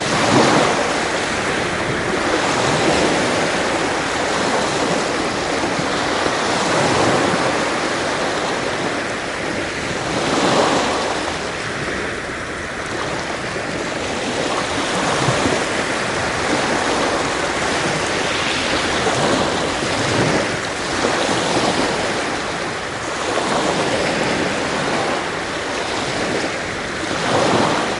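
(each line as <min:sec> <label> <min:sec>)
0:00.0 Loud rhythmic sound of waves on a coastline. 0:28.0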